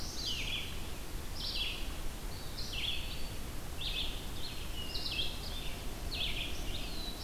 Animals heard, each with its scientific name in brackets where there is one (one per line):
Red-eyed Vireo (Vireo olivaceus)
Black-throated Blue Warbler (Setophaga caerulescens)
Eastern Wood-Pewee (Contopus virens)